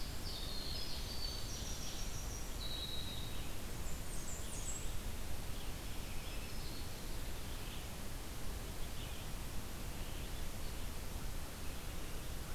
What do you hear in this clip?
Winter Wren, Red-eyed Vireo, Blackburnian Warbler, Black-throated Green Warbler